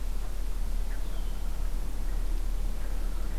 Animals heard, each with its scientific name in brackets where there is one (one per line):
Red-winged Blackbird (Agelaius phoeniceus)